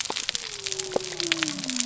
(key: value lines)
label: biophony
recorder: SoundTrap 300